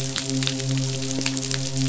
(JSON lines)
{"label": "biophony, midshipman", "recorder": "SoundTrap 500"}